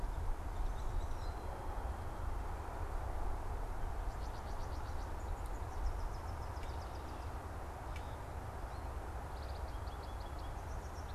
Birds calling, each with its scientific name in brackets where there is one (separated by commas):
unidentified bird, American Goldfinch (Spinus tristis), Hairy Woodpecker (Dryobates villosus)